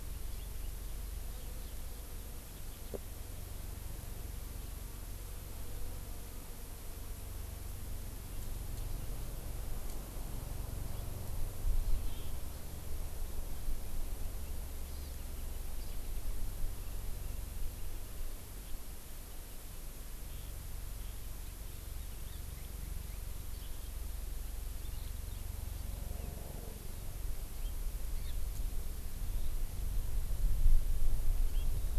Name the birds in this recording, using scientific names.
Chlorodrepanis virens